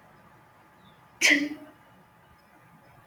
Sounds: Sneeze